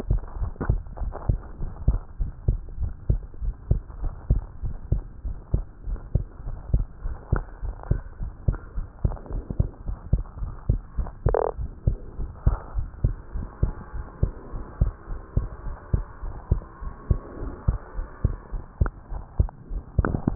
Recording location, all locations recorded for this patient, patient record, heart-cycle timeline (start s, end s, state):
tricuspid valve (TV)
aortic valve (AV)+pulmonary valve (PV)+tricuspid valve (TV)+mitral valve (MV)
#Age: Child
#Sex: Male
#Height: 108.0 cm
#Weight: 16.7 kg
#Pregnancy status: False
#Murmur: Absent
#Murmur locations: nan
#Most audible location: nan
#Systolic murmur timing: nan
#Systolic murmur shape: nan
#Systolic murmur grading: nan
#Systolic murmur pitch: nan
#Systolic murmur quality: nan
#Diastolic murmur timing: nan
#Diastolic murmur shape: nan
#Diastolic murmur grading: nan
#Diastolic murmur pitch: nan
#Diastolic murmur quality: nan
#Outcome: Normal
#Campaign: 2015 screening campaign
0.00	0.08	systole
0.08	0.22	S2
0.22	0.38	diastole
0.38	0.52	S1
0.52	0.66	systole
0.66	0.84	S2
0.84	1.00	diastole
1.00	1.14	S1
1.14	1.28	systole
1.28	1.42	S2
1.42	1.58	diastole
1.58	1.72	S1
1.72	1.86	systole
1.86	2.02	S2
2.02	2.17	diastole
2.17	2.30	S1
2.30	2.46	systole
2.46	2.60	S2
2.60	2.76	diastole
2.76	2.92	S1
2.92	3.06	systole
3.06	3.22	S2
3.22	3.39	diastole
3.39	3.54	S1
3.54	3.68	systole
3.68	3.82	S2
3.82	3.98	diastole
3.98	4.14	S1
4.14	4.27	systole
4.27	4.44	S2
4.44	4.61	diastole
4.61	4.76	S1
4.76	4.88	systole
4.88	5.04	S2
5.04	5.21	diastole
5.21	5.38	S1
5.38	5.50	systole
5.50	5.66	S2
5.66	5.84	diastole
5.84	6.00	S1
6.00	6.11	systole
6.11	6.26	S2
6.26	6.44	diastole
6.44	6.58	S1
6.58	6.70	systole
6.70	6.86	S2
6.86	7.01	diastole
7.01	7.16	S1
7.16	7.28	systole
7.28	7.44	S2
7.44	7.60	diastole
7.60	7.74	S1
7.74	7.87	systole
7.87	8.02	S2
8.02	8.18	diastole
8.18	8.32	S1
8.32	8.44	systole
8.44	8.60	S2
8.60	8.74	diastole
8.74	8.86	S1
8.86	9.00	systole
9.00	9.16	S2
9.16	9.30	diastole
9.30	9.42	S1
9.42	9.55	systole
9.55	9.70	S2
9.70	9.83	diastole
9.83	9.96	S1
9.96	10.10	systole
10.10	10.24	S2
10.24	10.37	diastole
10.37	10.52	S1
10.52	10.66	systole
10.66	10.82	S2
10.82	10.96	diastole
10.96	11.10	S1
11.10	11.24	systole
11.24	11.38	S2
11.38	11.55	diastole
11.55	11.70	S1
11.70	11.83	systole
11.83	11.98	S2
11.98	12.16	diastole
12.16	12.32	S1
12.32	12.44	systole
12.44	12.60	S2
12.60	12.73	diastole
12.73	12.88	S1
12.88	13.01	systole
13.01	13.16	S2
13.16	13.33	diastole
13.33	13.48	S1
13.48	13.59	systole
13.59	13.74	S2
13.74	13.92	diastole
13.92	14.06	S1
14.06	14.19	systole
14.19	14.34	S2
14.34	14.50	diastole
14.50	14.64	S1
14.64	14.78	systole
14.78	14.94	S2
14.94	15.07	diastole
15.07	15.20	S1
15.20	15.33	systole
15.33	15.48	S2
15.48	15.63	diastole
15.63	15.76	S1
15.76	15.89	systole
15.89	16.06	S2
16.06	16.20	diastole
16.20	16.36	S1
16.36	16.48	systole
16.48	16.64	S2
16.64	16.78	diastole
16.78	16.92	S1
16.92	17.06	systole
17.06	17.20	S2
17.20	17.37	diastole
17.37	17.50	S1
17.50	17.66	systole
17.66	17.80	S2
17.80	17.93	diastole
17.93	18.06	S1
18.06	18.18	systole
18.18	18.36	S2
18.36	18.52	diastole
18.52	18.64	S1
18.64	18.78	systole
18.78	18.92	S2
18.92	19.09	diastole
19.09	19.22	S1
19.22	19.36	systole
19.36	19.50	S2
19.50	19.62	diastole